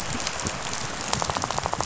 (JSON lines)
{"label": "biophony, rattle", "recorder": "SoundTrap 500"}